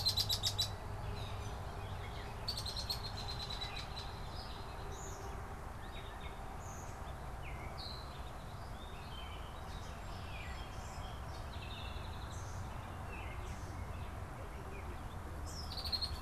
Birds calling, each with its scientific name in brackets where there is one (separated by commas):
European Starling (Sturnus vulgaris), Red-winged Blackbird (Agelaius phoeniceus), Gray Catbird (Dumetella carolinensis), Song Sparrow (Melospiza melodia)